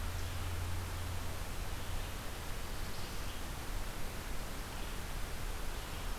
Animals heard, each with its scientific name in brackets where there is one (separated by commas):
Red-eyed Vireo (Vireo olivaceus)